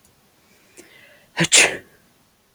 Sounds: Sneeze